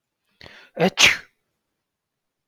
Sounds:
Sneeze